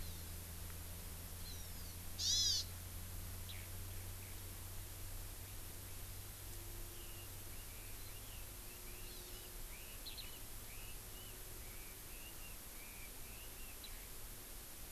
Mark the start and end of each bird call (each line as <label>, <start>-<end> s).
Hawaii Amakihi (Chlorodrepanis virens), 0.0-0.4 s
Hawaii Amakihi (Chlorodrepanis virens), 1.4-1.9 s
Hawaii Amakihi (Chlorodrepanis virens), 2.2-2.6 s
Eurasian Skylark (Alauda arvensis), 3.4-3.7 s
Eurasian Skylark (Alauda arvensis), 4.2-4.4 s
Red-billed Leiothrix (Leiothrix lutea), 6.9-13.8 s
Hawaii Amakihi (Chlorodrepanis virens), 9.1-9.5 s
Eurasian Skylark (Alauda arvensis), 10.0-10.2 s
Eurasian Skylark (Alauda arvensis), 13.8-13.9 s